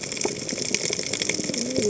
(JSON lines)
{"label": "biophony, cascading saw", "recorder": "HydroMoth"}